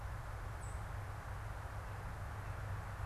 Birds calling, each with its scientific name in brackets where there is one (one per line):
unidentified bird